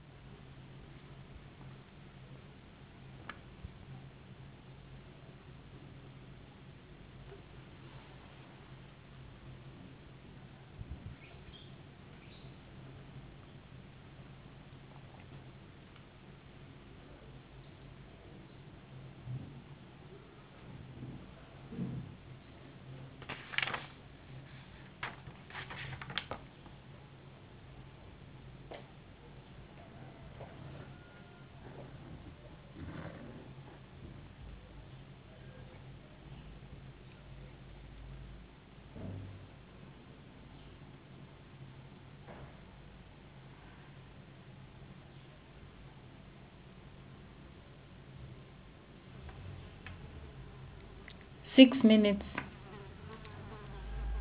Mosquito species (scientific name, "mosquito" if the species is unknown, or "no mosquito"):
no mosquito